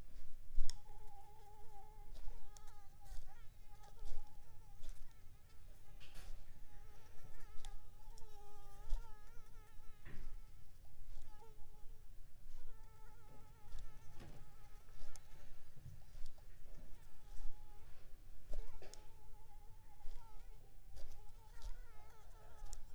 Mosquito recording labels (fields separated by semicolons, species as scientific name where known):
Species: Anopheles arabiensis; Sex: female; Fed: unfed; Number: one; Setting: cup